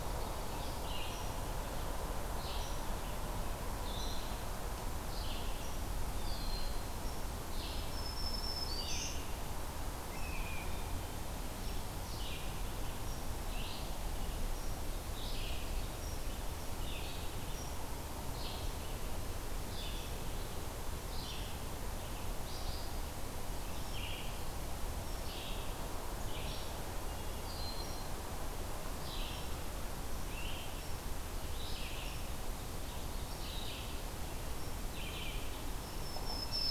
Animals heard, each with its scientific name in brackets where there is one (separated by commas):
Blue Jay (Cyanocitta cristata), Red-eyed Vireo (Vireo olivaceus), Black-throated Green Warbler (Setophaga virens), Broad-winged Hawk (Buteo platypterus), Ovenbird (Seiurus aurocapilla)